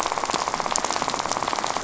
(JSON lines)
{"label": "biophony, rattle", "recorder": "SoundTrap 500"}